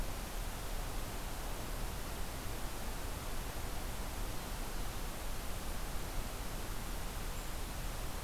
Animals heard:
forest ambience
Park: Acadia National Park